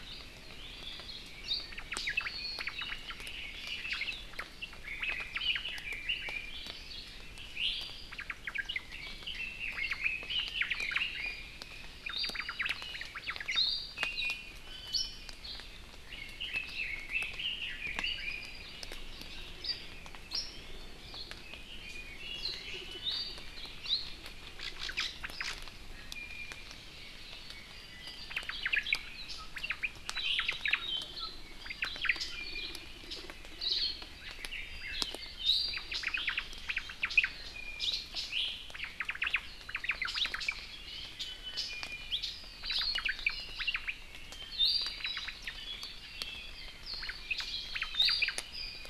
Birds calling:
Red-billed Leiothrix (Leiothrix lutea), Iiwi (Drepanis coccinea), Omao (Myadestes obscurus), Hawaii Akepa (Loxops coccineus), Apapane (Himatione sanguinea)

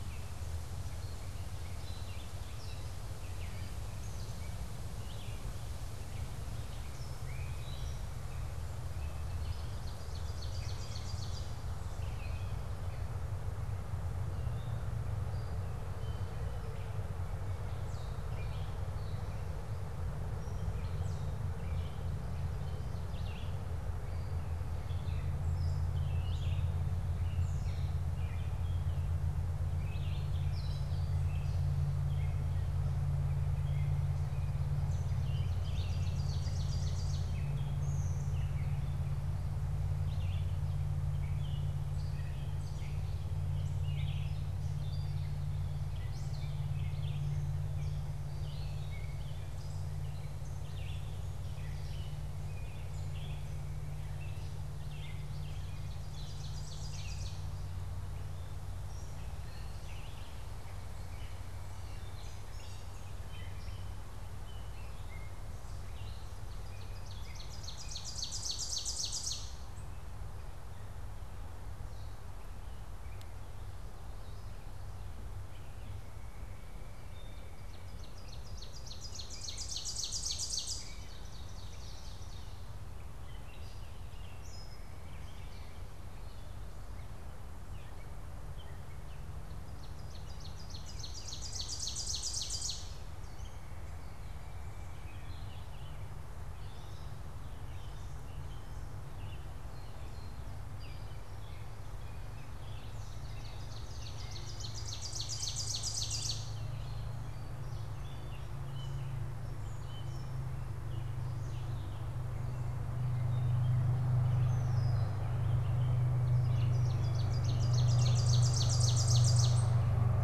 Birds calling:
Gray Catbird (Dumetella carolinensis), Ovenbird (Seiurus aurocapilla), Red-eyed Vireo (Vireo olivaceus)

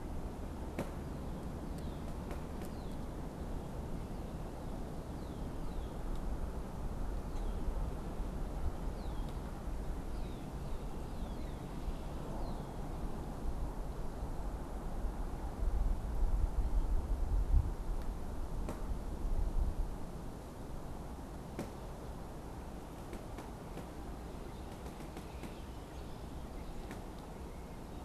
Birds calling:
Red-winged Blackbird (Agelaius phoeniceus)

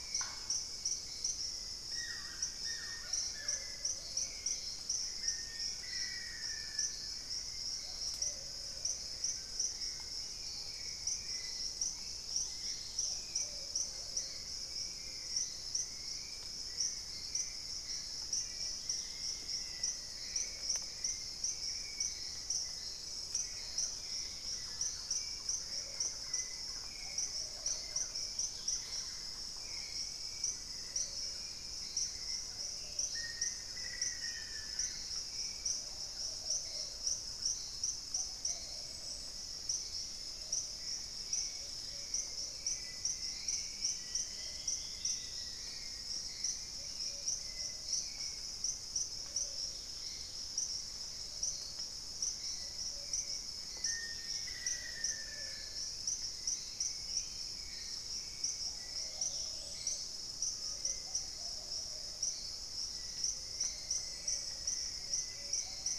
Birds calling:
Thrush-like Wren (Campylorhynchus turdinus), Hauxwell's Thrush (Turdus hauxwelli), Buff-throated Woodcreeper (Xiphorhynchus guttatus), Great Tinamou (Tinamus major), Dusky-throated Antshrike (Thamnomanes ardesiacus), Black-tailed Trogon (Trogon melanurus), Long-billed Woodcreeper (Nasica longirostris), unidentified bird, Plumbeous Pigeon (Patagioenas plumbea), Dusky-capped Greenlet (Pachysylvia hypoxantha), Black-faced Antthrush (Formicarius analis)

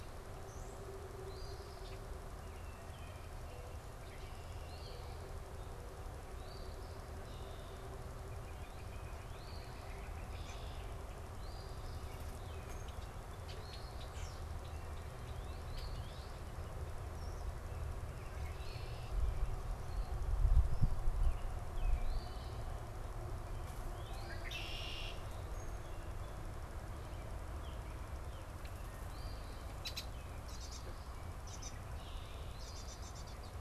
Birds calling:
American Robin (Turdus migratorius), Northern Flicker (Colaptes auratus), unidentified bird, Red-winged Blackbird (Agelaius phoeniceus), Northern Cardinal (Cardinalis cardinalis), Eastern Phoebe (Sayornis phoebe)

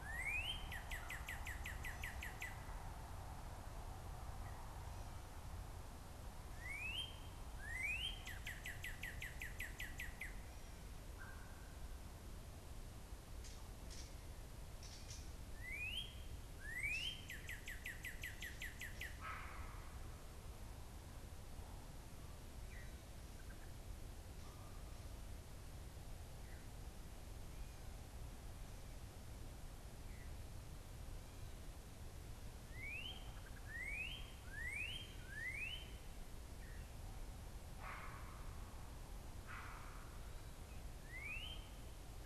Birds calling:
Great Blue Heron (Ardea herodias), Northern Cardinal (Cardinalis cardinalis)

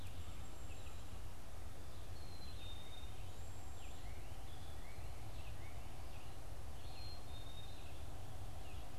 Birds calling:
Red-eyed Vireo (Vireo olivaceus), Black-capped Chickadee (Poecile atricapillus), Cedar Waxwing (Bombycilla cedrorum)

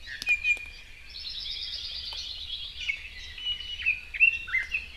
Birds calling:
Hawaii Creeper (Loxops mana), Red-billed Leiothrix (Leiothrix lutea), Iiwi (Drepanis coccinea)

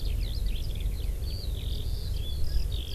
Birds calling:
Eurasian Skylark (Alauda arvensis)

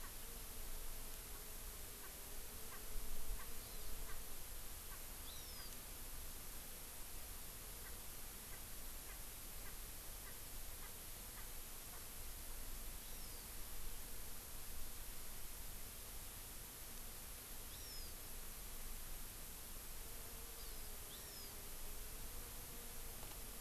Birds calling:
Erckel's Francolin (Pternistis erckelii), Hawaii Amakihi (Chlorodrepanis virens)

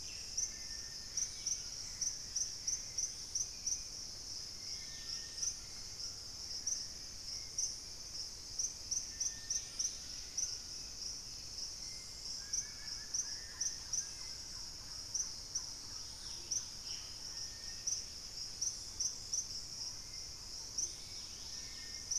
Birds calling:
Hauxwell's Thrush (Turdus hauxwelli), Thrush-like Wren (Campylorhynchus turdinus), Gray Antbird (Cercomacra cinerascens), Wing-barred Piprites (Piprites chloris), Black-faced Antthrush (Formicarius analis), Dusky-throated Antshrike (Thamnomanes ardesiacus), White-throated Toucan (Ramphastos tucanus), Dusky-capped Greenlet (Pachysylvia hypoxantha)

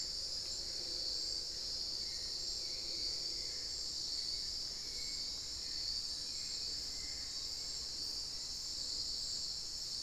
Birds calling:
Hauxwell's Thrush (Turdus hauxwelli)

